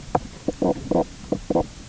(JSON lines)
{"label": "biophony, knock croak", "recorder": "SoundTrap 300"}